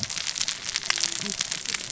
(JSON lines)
{"label": "biophony, cascading saw", "recorder": "SoundTrap 600 or HydroMoth"}